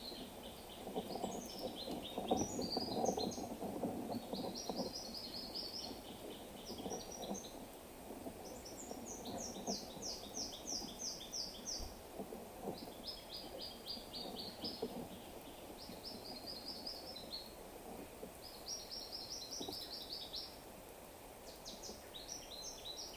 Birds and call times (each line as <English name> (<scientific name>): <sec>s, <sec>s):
Brown Woodland-Warbler (Phylloscopus umbrovirens): 2.8s, 10.1s, 19.4s